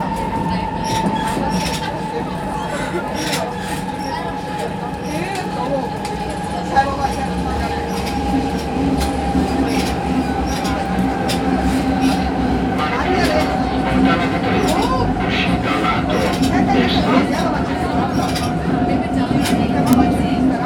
Are human beings conversing?
yes